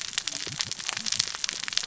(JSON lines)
{"label": "biophony, cascading saw", "recorder": "SoundTrap 600 or HydroMoth"}